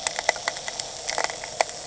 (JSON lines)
{"label": "anthrophony, boat engine", "recorder": "HydroMoth"}